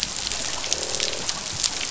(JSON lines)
{"label": "biophony, croak", "recorder": "SoundTrap 500"}